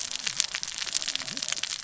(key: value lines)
label: biophony, cascading saw
recorder: SoundTrap 600 or HydroMoth